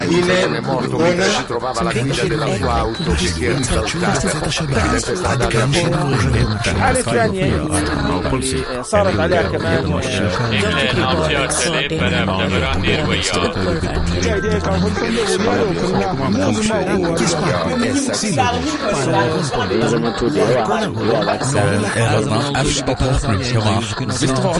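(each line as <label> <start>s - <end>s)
Multiple people are speaking loudly at the same time in different languages, with unnatural sounds resembling radios. 0.0s - 24.6s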